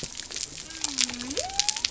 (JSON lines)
{"label": "biophony", "recorder": "SoundTrap 300"}